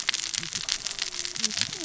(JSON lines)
{"label": "biophony, cascading saw", "recorder": "SoundTrap 600 or HydroMoth"}